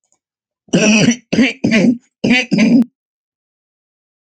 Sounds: Throat clearing